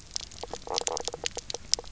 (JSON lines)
{"label": "biophony, knock croak", "recorder": "SoundTrap 300"}